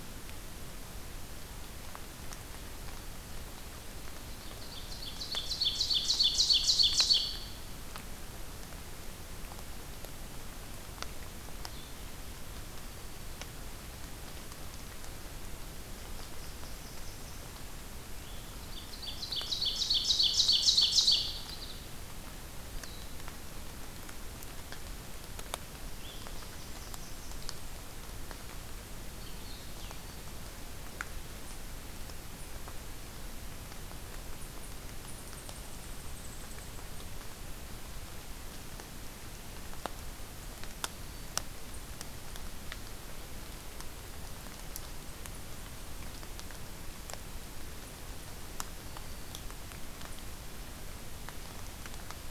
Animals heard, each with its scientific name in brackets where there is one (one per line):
Ovenbird (Seiurus aurocapilla)
Black-throated Green Warbler (Setophaga virens)
unidentified call
Blue-headed Vireo (Vireo solitarius)
Blackburnian Warbler (Setophaga fusca)